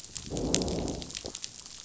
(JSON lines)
{"label": "biophony, growl", "recorder": "SoundTrap 500"}